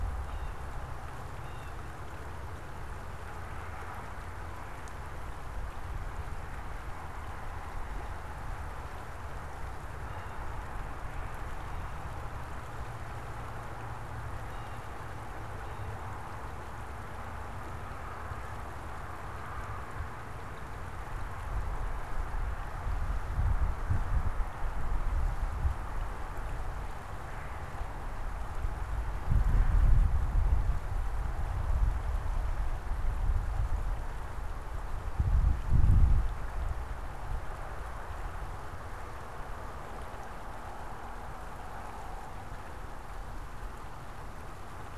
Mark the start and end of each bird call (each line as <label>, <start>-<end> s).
unidentified bird, 0.0-10.5 s
Blue Jay (Cyanocitta cristata), 14.1-16.1 s